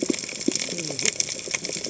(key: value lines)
label: biophony, cascading saw
recorder: HydroMoth